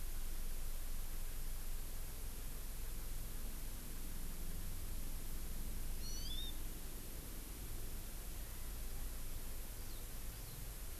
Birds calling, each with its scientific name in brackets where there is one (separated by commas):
Hawaii Amakihi (Chlorodrepanis virens), Warbling White-eye (Zosterops japonicus)